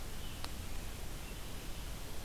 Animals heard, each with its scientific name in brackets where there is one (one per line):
American Robin (Turdus migratorius)